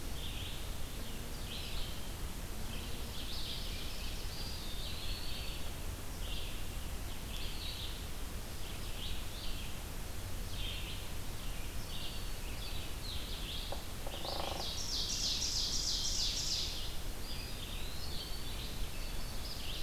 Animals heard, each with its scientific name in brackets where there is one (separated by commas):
Ovenbird (Seiurus aurocapilla), Scarlet Tanager (Piranga olivacea), Black-throated Green Warbler (Setophaga virens), Red-eyed Vireo (Vireo olivaceus), Eastern Wood-Pewee (Contopus virens), Hairy Woodpecker (Dryobates villosus)